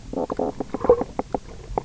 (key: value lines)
label: biophony, knock croak
recorder: SoundTrap 300